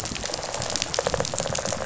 {"label": "biophony, rattle response", "recorder": "SoundTrap 500"}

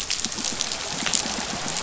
{"label": "biophony", "recorder": "SoundTrap 500"}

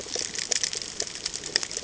{"label": "ambient", "recorder": "HydroMoth"}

